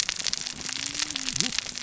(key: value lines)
label: biophony, cascading saw
recorder: SoundTrap 600 or HydroMoth